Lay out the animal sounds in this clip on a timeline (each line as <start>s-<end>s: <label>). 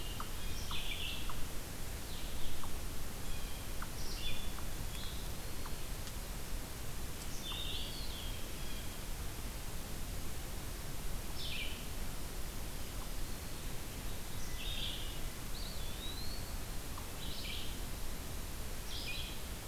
0.0s-7.6s: unknown mammal
0.0s-19.7s: Red-eyed Vireo (Vireo olivaceus)
3.2s-3.7s: Blue Jay (Cyanocitta cristata)
7.6s-8.5s: Eastern Wood-Pewee (Contopus virens)
8.1s-9.2s: Blue Jay (Cyanocitta cristata)
15.4s-16.7s: Eastern Wood-Pewee (Contopus virens)